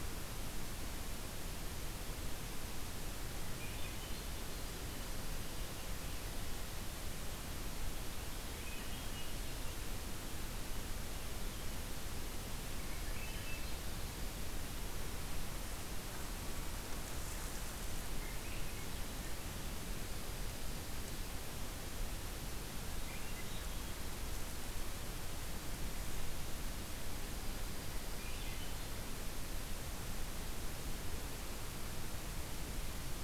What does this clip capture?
Swainson's Thrush, Dark-eyed Junco